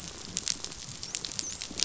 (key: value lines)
label: biophony, dolphin
recorder: SoundTrap 500